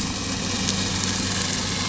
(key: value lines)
label: anthrophony, boat engine
recorder: SoundTrap 500